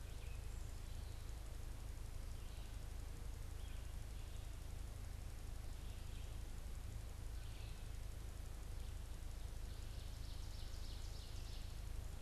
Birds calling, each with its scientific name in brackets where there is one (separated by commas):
Red-eyed Vireo (Vireo olivaceus), Ovenbird (Seiurus aurocapilla)